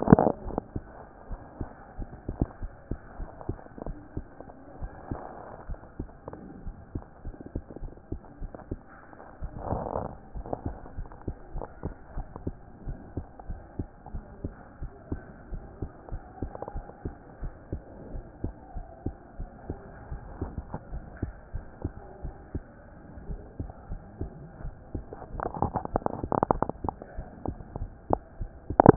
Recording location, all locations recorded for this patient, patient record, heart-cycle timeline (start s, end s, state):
aortic valve (AV)
aortic valve (AV)+pulmonary valve (PV)+tricuspid valve (TV)+mitral valve (MV)
#Age: Child
#Sex: Female
#Height: 114.0 cm
#Weight: 16.5 kg
#Pregnancy status: False
#Murmur: Absent
#Murmur locations: nan
#Most audible location: nan
#Systolic murmur timing: nan
#Systolic murmur shape: nan
#Systolic murmur grading: nan
#Systolic murmur pitch: nan
#Systolic murmur quality: nan
#Diastolic murmur timing: nan
#Diastolic murmur shape: nan
#Diastolic murmur grading: nan
#Diastolic murmur pitch: nan
#Diastolic murmur quality: nan
#Outcome: Abnormal
#Campaign: 2014 screening campaign
0.00	9.37	unannotated
9.37	9.70	diastole
9.70	9.82	S1
9.82	9.96	systole
9.96	10.10	S2
10.10	10.34	diastole
10.34	10.46	S1
10.46	10.64	systole
10.64	10.76	S2
10.76	10.96	diastole
10.96	11.08	S1
11.08	11.26	systole
11.26	11.36	S2
11.36	11.54	diastole
11.54	11.66	S1
11.66	11.84	systole
11.84	11.94	S2
11.94	12.16	diastole
12.16	12.26	S1
12.26	12.44	systole
12.44	12.54	S2
12.54	12.86	diastole
12.86	12.98	S1
12.98	13.16	systole
13.16	13.26	S2
13.26	13.48	diastole
13.48	13.60	S1
13.60	13.78	systole
13.78	13.88	S2
13.88	14.12	diastole
14.12	14.24	S1
14.24	14.42	systole
14.42	14.52	S2
14.52	14.80	diastole
14.80	14.92	S1
14.92	15.10	systole
15.10	15.20	S2
15.20	15.52	diastole
15.52	15.64	S1
15.64	15.80	systole
15.80	15.90	S2
15.90	16.12	diastole
16.12	16.22	S1
16.22	16.42	systole
16.42	16.52	S2
16.52	16.74	diastole
16.74	16.86	S1
16.86	17.04	systole
17.04	17.14	S2
17.14	17.42	diastole
17.42	17.52	S1
17.52	17.72	systole
17.72	17.82	S2
17.82	18.12	diastole
18.12	18.24	S1
18.24	18.42	systole
18.42	18.54	S2
18.54	18.76	diastole
18.76	18.86	S1
18.86	19.04	systole
19.04	19.14	S2
19.14	19.38	diastole
19.38	19.50	S1
19.50	19.68	systole
19.68	19.78	S2
19.78	20.10	diastole
20.10	20.22	S1
20.22	20.40	systole
20.40	28.96	unannotated